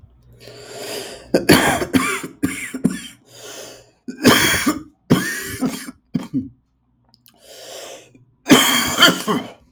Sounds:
Cough